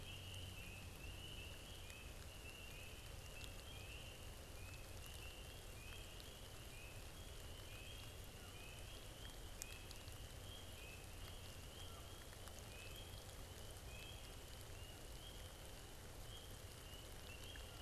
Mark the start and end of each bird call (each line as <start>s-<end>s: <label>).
8.1s-8.6s: Canada Goose (Branta canadensis)